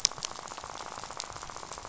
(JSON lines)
{"label": "biophony, rattle", "recorder": "SoundTrap 500"}